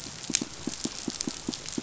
{"label": "biophony, pulse", "recorder": "SoundTrap 500"}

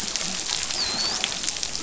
{"label": "biophony, dolphin", "recorder": "SoundTrap 500"}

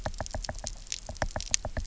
{"label": "biophony, knock", "recorder": "SoundTrap 300"}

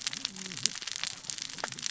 {"label": "biophony, cascading saw", "recorder": "SoundTrap 600 or HydroMoth"}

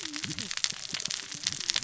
{"label": "biophony, cascading saw", "recorder": "SoundTrap 600 or HydroMoth"}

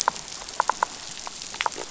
{"label": "biophony", "recorder": "SoundTrap 500"}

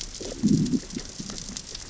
{"label": "biophony, growl", "recorder": "SoundTrap 600 or HydroMoth"}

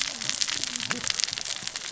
{"label": "biophony, cascading saw", "recorder": "SoundTrap 600 or HydroMoth"}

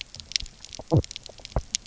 {"label": "biophony", "recorder": "SoundTrap 300"}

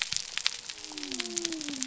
{"label": "biophony", "recorder": "SoundTrap 300"}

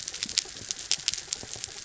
{"label": "anthrophony, mechanical", "recorder": "SoundTrap 300"}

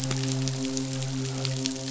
{"label": "biophony, midshipman", "recorder": "SoundTrap 500"}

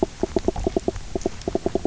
{"label": "biophony, knock croak", "recorder": "SoundTrap 300"}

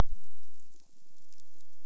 {"label": "biophony", "recorder": "SoundTrap 300"}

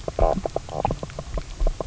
{"label": "biophony, knock croak", "recorder": "SoundTrap 300"}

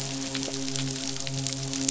{"label": "biophony, midshipman", "recorder": "SoundTrap 500"}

